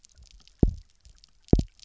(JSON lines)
{"label": "biophony, double pulse", "recorder": "SoundTrap 300"}